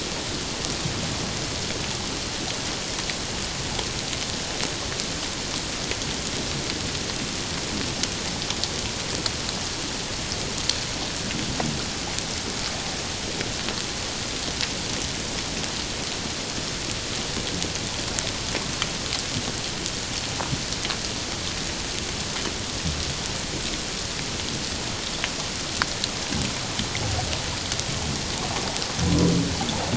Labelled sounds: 29.0	29.3	humpback whale, 0.97 to 1.1 kHz

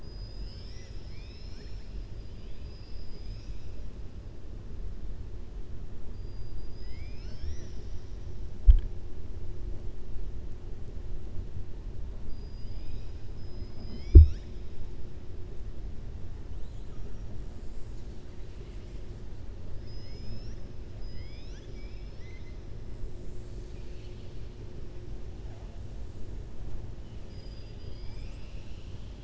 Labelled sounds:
12.2	13.2	killer whale, southern resident, 2.4 to 6.4 kHz
19.7	20.6	killer whale, southern resident, 2.0 to 7.1 kHz
20.9	22.6	killer whale, southern resident, 1.6 to 6.4 kHz
27.2	29.2	killer whale, southern resident, 2.2 to 7.9 kHz

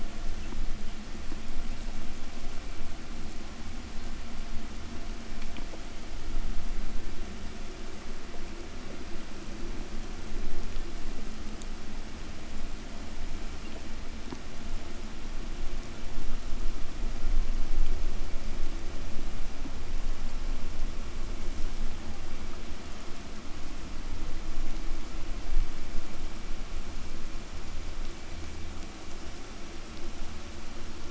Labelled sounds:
25.1	31.0	killer whale, 7.8 to 8.0 kHz

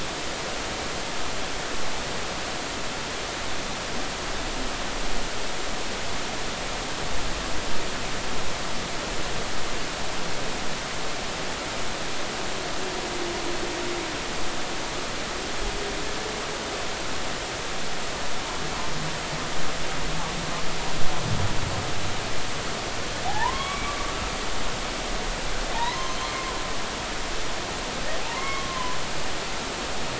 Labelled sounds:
23.2	24.0	humpback whale, 0.80 to 2.4 kHz
25.7	26.2	humpback whale, 0.80 to 6.3 kHz
28.2	29.0	humpback whale, 0.80 to 2.2 kHz

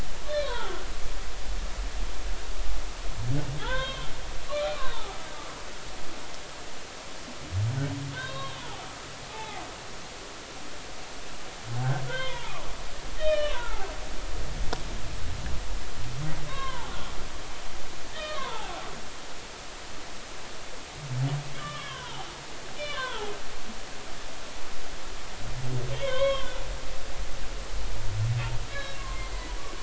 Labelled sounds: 0.4	0.8	humpback whale, 0.80 to 3.5 kHz
3.6	4.1	humpback whale, 0.80 to 3.8 kHz
4.5	5.2	humpback whale, 0.80 to 2.5 kHz
8.1	8.8	humpback whale, 0.80 to 3.8 kHz
9.3	9.6	humpback whale, 0.80 to 2.2 kHz
12.1	12.7	humpback whale, 0.80 to 3.7 kHz
13.2	13.8	humpback whale, 0.90 to 3.8 kHz
16.5	16.9	humpback whale, 0.80 to 4.0 kHz
18.1	18.7	humpback whale, 0.80 to 3.9 kHz
21.6	22.3	humpback whale, 0.80 to 3.4 kHz
22.8	23.3	humpback whale, 0.80 to 3.0 kHz
25.9	26.5	humpback whale, 0.96 to 3.9 kHz
28.7	29.0	humpback whale, 1.6 to 4.0 kHz

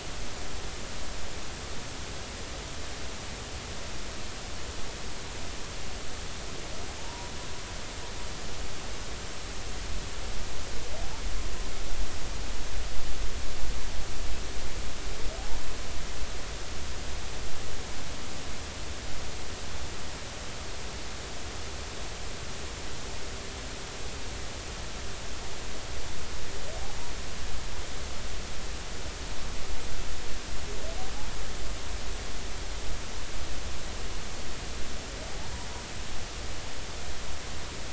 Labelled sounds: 7.0	7.3	humpback whale, 0.83 to 1.0 kHz
15.4	15.6	humpback whale, 0.80 to 0.99 kHz

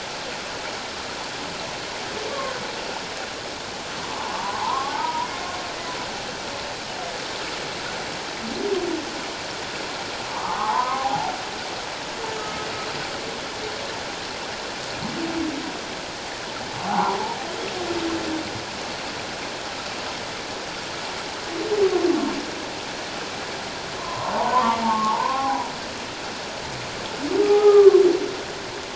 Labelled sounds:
2.3	2.6	humpback whale, 1.0 to 1.2 kHz
4.2	5.3	humpback whale, 0.78 to 1.2 kHz
10.3	11.3	humpback whale, 0.78 to 1.3 kHz
12.4	12.7	humpback whale, 1.2 to 1.3 kHz
16.9	17.2	humpback whale, 0.78 to 1.3 kHz
22.1	22.4	humpback whale, 1.0 to 1.2 kHz
24.0	25.7	humpback whale, 0.78 to 1.2 kHz
27.4	28.0	humpback whale, 0.78 to 1.3 kHz

